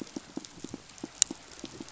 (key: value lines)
label: biophony, pulse
recorder: SoundTrap 500